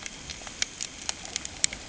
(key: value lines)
label: ambient
recorder: HydroMoth